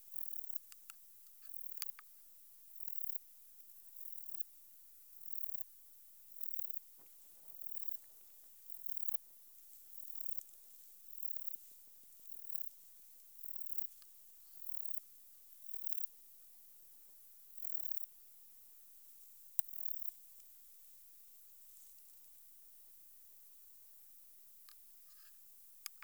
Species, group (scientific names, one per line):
Baetica ustulata
Orthoptera